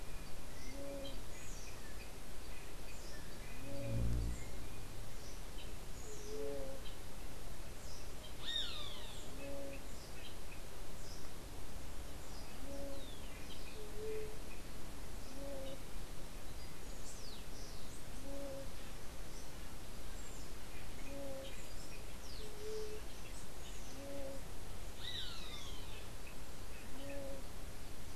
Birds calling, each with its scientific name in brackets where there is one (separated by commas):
Roadside Hawk (Rupornis magnirostris), White-tipped Dove (Leptotila verreauxi), unidentified bird